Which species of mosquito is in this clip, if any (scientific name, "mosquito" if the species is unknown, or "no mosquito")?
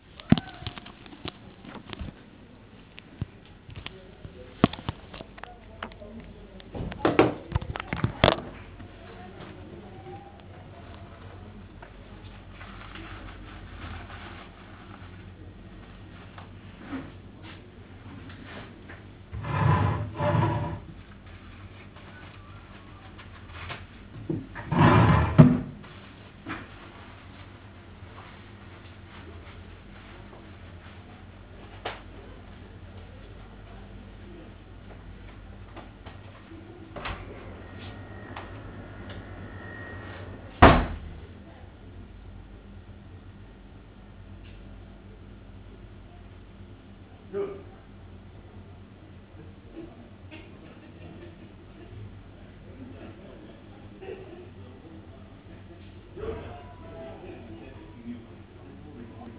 no mosquito